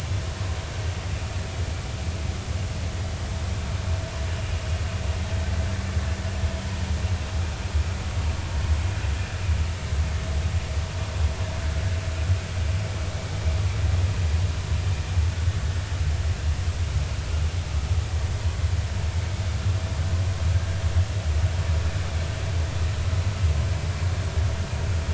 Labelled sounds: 4.3	4.6	vessel noise, 2.8 to 2.9 kHz

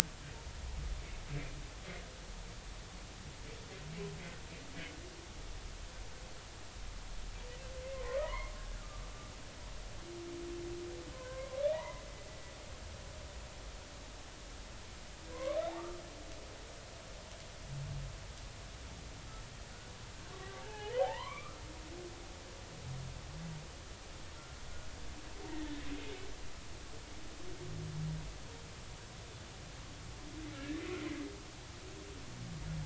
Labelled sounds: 8.2	8.5	humpback whale, 0.93 to 2.2 kHz
11.1	12.0	humpback whale, 0.80 to 2.1 kHz
15.3	16.0	humpback whale, 0.96 to 2.3 kHz
20.4	21.5	humpback whale, 0.80 to 3.3 kHz
22.0	22.6	humpback whale, 0.80 to 1.4 kHz
30.5	30.8	humpback whale, 1.6 to 1.9 kHz

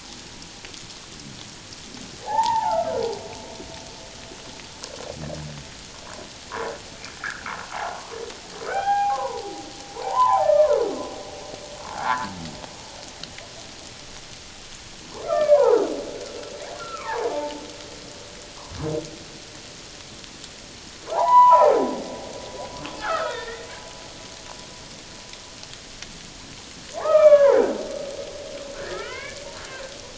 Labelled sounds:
2.2	3.0	humpback whale, 0.78 to 2.0 kHz
7.2	8.0	humpback whale, 0.78 to 1.9 kHz
8.7	9.5	humpback whale, 0.78 to 3.3 kHz
9.9	10.8	humpback whale, 0.78 to 1.9 kHz
11.8	12.3	humpback whale, 0.81 to 1.9 kHz
15.2	15.8	humpback whale, 0.78 to 2.4 kHz
16.8	17.6	humpback whale, 0.78 to 1.5 kHz
21.0	21.7	humpback whale, 0.78 to 3.0 kHz
23.0	23.7	humpback whale, 1.2 to 2.1 kHz
26.9	27.8	humpback whale, 0.78 to 3.5 kHz
28.7	29.4	humpback whale, 1.2 to 2.4 kHz

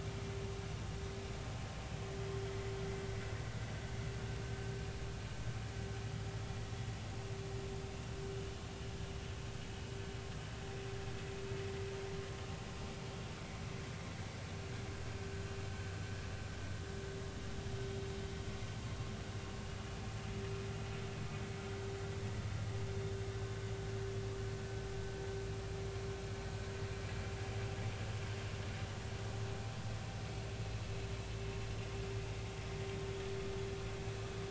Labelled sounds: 2.5	2.7	vessel noise, 1.9 to 2.1 kHz

